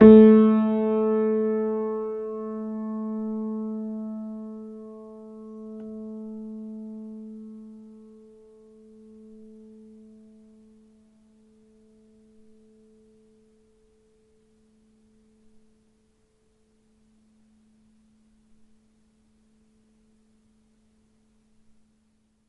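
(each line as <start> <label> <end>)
0.0 A piano key is pressed, producing a sound that gradually fades. 13.5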